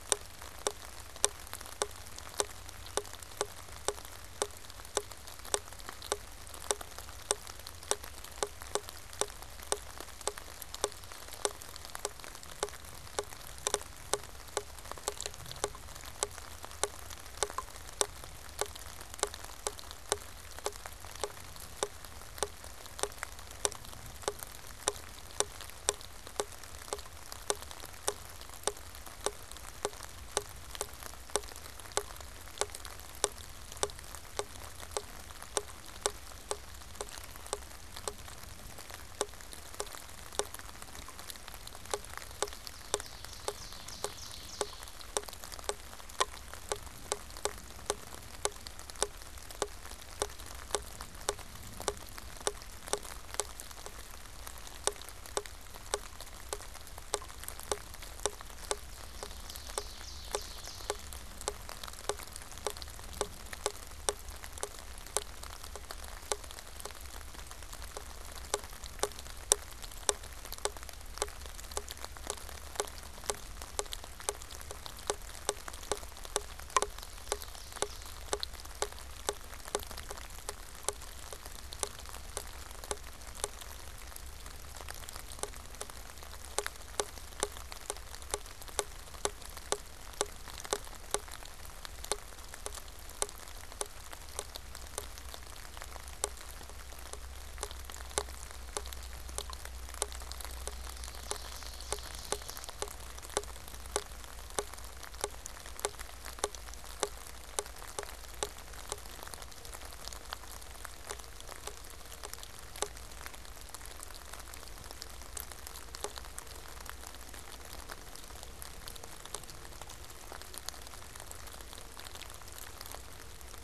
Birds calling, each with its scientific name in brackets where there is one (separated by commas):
Ovenbird (Seiurus aurocapilla)